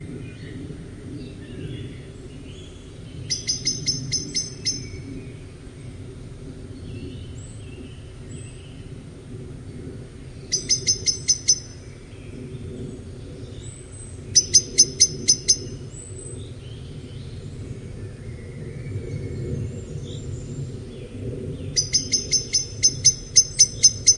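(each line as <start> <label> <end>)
0.0 Birds chirping in the distance. 24.2
0.0 Wind hums with a low, constant sound. 24.2
3.2 A blackbird chirps loudly with short, high-pitched tweets. 5.0
10.4 A blackbird chirps loudly with short, high-pitched tweets. 11.7
14.3 A blackbird chirps loudly with short, high-pitched tweets. 15.6
21.6 A blackbird chirps loudly with short, high-pitched tweets. 24.2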